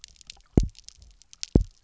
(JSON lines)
{"label": "biophony, double pulse", "recorder": "SoundTrap 300"}